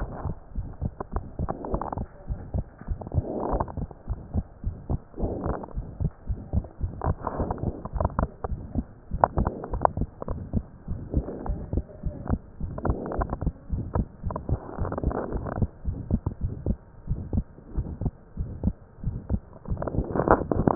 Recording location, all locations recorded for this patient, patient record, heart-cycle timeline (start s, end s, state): pulmonary valve (PV)
aortic valve (AV)+pulmonary valve (PV)+tricuspid valve (TV)+mitral valve (MV)
#Age: Child
#Sex: Female
#Height: 118.0 cm
#Weight: 21.1 kg
#Pregnancy status: False
#Murmur: Present
#Murmur locations: aortic valve (AV)+mitral valve (MV)+pulmonary valve (PV)+tricuspid valve (TV)
#Most audible location: pulmonary valve (PV)
#Systolic murmur timing: Early-systolic
#Systolic murmur shape: Plateau
#Systolic murmur grading: II/VI
#Systolic murmur pitch: Medium
#Systolic murmur quality: Harsh
#Diastolic murmur timing: nan
#Diastolic murmur shape: nan
#Diastolic murmur grading: nan
#Diastolic murmur pitch: nan
#Diastolic murmur quality: nan
#Outcome: Abnormal
#Campaign: 2015 screening campaign
0.00	3.88	unannotated
3.88	4.10	diastole
4.10	4.20	S1
4.20	4.32	systole
4.32	4.46	S2
4.46	4.66	diastole
4.66	4.78	S1
4.78	4.88	systole
4.88	4.98	S2
4.98	5.20	diastole
5.20	5.34	S1
5.34	5.44	systole
5.44	5.56	S2
5.56	5.76	diastole
5.76	5.86	S1
5.86	5.98	systole
5.98	6.10	S2
6.10	6.28	diastole
6.28	6.40	S1
6.40	6.50	systole
6.50	6.64	S2
6.64	6.82	diastole
6.82	6.94	S1
6.94	7.04	systole
7.04	7.18	S2
7.18	7.38	diastole
7.38	7.48	S1
7.48	7.64	systole
7.64	7.76	S2
7.76	7.94	diastole
7.94	8.04	S1
8.04	8.22	systole
8.22	8.32	S2
8.32	8.50	diastole
8.50	8.64	S1
8.64	8.75	systole
8.75	8.86	S2
8.86	9.12	diastole
9.12	9.28	S1
9.28	9.38	systole
9.38	9.54	S2
9.54	9.73	diastole
9.73	9.84	S1
9.84	9.98	systole
9.98	10.08	S2
10.08	10.28	diastole
10.28	10.42	S1
10.42	10.54	systole
10.54	10.64	S2
10.64	10.88	diastole
10.88	11.02	S1
11.02	11.14	systole
11.14	11.28	S2
11.28	11.46	diastole
11.46	11.60	S1
11.60	11.74	systole
11.74	11.84	S2
11.84	12.04	diastole
12.04	12.14	S1
12.14	12.30	systole
12.30	12.40	S2
12.40	12.62	diastole
12.62	12.76	S1
12.76	12.84	systole
12.84	12.98	S2
12.98	13.16	diastole
13.16	13.30	S1
13.30	13.40	systole
13.40	13.52	S2
13.52	13.70	diastole
13.70	13.86	S1
13.86	13.94	systole
13.94	14.08	S2
14.08	14.24	diastole
14.24	14.34	S1
14.34	14.46	systole
14.46	14.60	S2
14.60	14.78	diastole
14.78	14.92	S1
14.92	15.04	systole
15.04	15.16	S2
15.16	15.34	diastole
15.34	15.46	S1
15.46	15.56	systole
15.56	15.70	S2
15.70	15.86	diastole
15.86	16.00	S1
16.00	16.08	systole
16.08	16.20	S2
16.20	16.42	diastole
16.42	16.56	S1
16.56	16.68	systole
16.68	16.82	S2
16.82	17.08	diastole
17.08	17.22	S1
17.22	17.32	systole
17.32	17.46	S2
17.46	17.72	diastole
17.72	17.90	S1
17.90	18.02	systole
18.02	18.14	S2
18.14	18.38	diastole
18.38	18.52	S1
18.52	18.62	systole
18.62	18.76	S2
18.76	19.02	diastole
19.02	19.16	S1
19.16	19.28	systole
19.28	19.42	S2
19.42	19.68	diastole
19.68	19.80	S1
19.80	19.92	systole
19.92	20.06	S2
20.06	20.28	diastole
20.28	20.75	unannotated